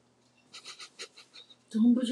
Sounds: Sneeze